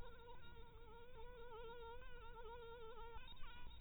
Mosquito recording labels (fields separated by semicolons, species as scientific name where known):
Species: Anopheles dirus; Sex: female; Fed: blood-fed; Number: one; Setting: cup